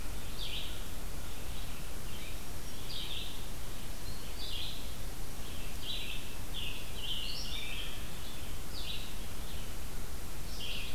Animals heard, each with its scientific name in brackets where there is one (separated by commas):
Scarlet Tanager (Piranga olivacea), Red-eyed Vireo (Vireo olivaceus)